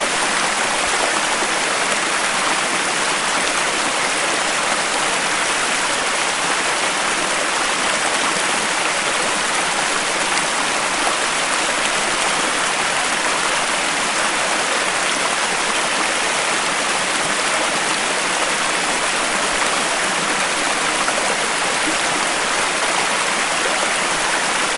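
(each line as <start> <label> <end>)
0.1 A waterfall creates a constant, loud background noise that blends seamlessly and becomes indistinguishable as a distinct water sound. 24.6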